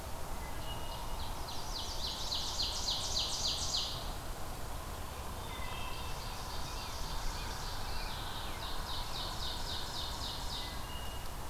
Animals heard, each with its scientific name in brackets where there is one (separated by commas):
Ovenbird (Seiurus aurocapilla), Mourning Warbler (Geothlypis philadelphia), Wood Thrush (Hylocichla mustelina)